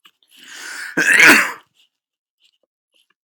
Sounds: Sneeze